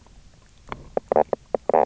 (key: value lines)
label: biophony, knock croak
recorder: SoundTrap 300